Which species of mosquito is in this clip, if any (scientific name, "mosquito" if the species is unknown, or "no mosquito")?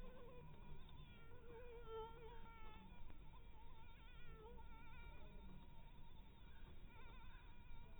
Anopheles harrisoni